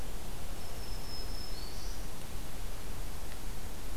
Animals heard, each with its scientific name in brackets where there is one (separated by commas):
Black-throated Green Warbler (Setophaga virens)